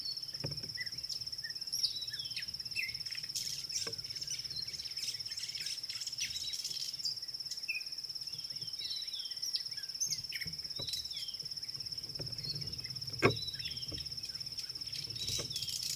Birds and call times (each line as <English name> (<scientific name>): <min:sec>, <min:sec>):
Red-backed Scrub-Robin (Cercotrichas leucophrys): 0:02.2, 0:09.0
White-browed Sparrow-Weaver (Plocepasser mahali): 0:05.8